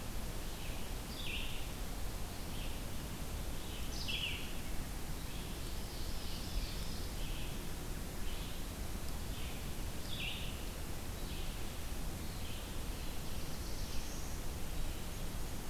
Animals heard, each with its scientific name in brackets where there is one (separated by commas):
Ovenbird (Seiurus aurocapilla), Red-eyed Vireo (Vireo olivaceus), Black-throated Blue Warbler (Setophaga caerulescens)